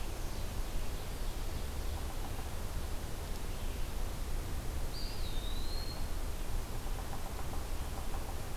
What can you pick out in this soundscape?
Ovenbird, Eastern Wood-Pewee, unknown woodpecker